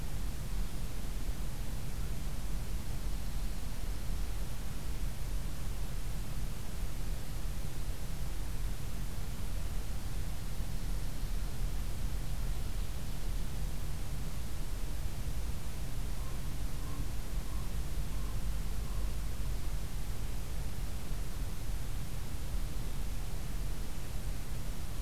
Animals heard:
forest ambience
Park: Acadia National Park